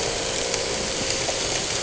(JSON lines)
{"label": "anthrophony, boat engine", "recorder": "HydroMoth"}